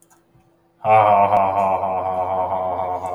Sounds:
Laughter